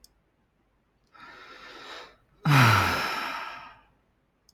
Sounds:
Sigh